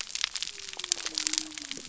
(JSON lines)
{"label": "biophony", "recorder": "SoundTrap 300"}